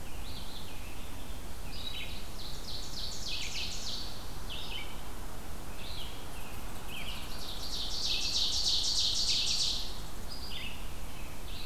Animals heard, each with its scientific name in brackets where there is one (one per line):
unknown mammal
Ovenbird (Seiurus aurocapilla)
American Robin (Turdus migratorius)
Red-eyed Vireo (Vireo olivaceus)